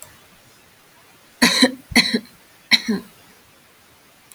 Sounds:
Cough